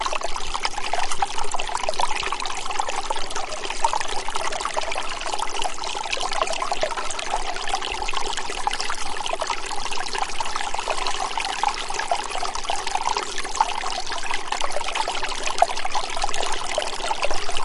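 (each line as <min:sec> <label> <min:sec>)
0:00.0 A small stream flows gently with soft, continuous water movement. 0:17.6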